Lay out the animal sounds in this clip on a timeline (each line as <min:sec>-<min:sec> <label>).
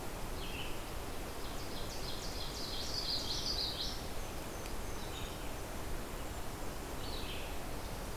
0:00.0-0:08.2 Blue-headed Vireo (Vireo solitarius)
0:01.2-0:03.4 Ovenbird (Seiurus aurocapilla)
0:02.5-0:04.0 Common Yellowthroat (Geothlypis trichas)
0:04.0-0:05.3 Blackburnian Warbler (Setophaga fusca)